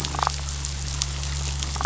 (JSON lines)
{"label": "biophony, damselfish", "recorder": "SoundTrap 500"}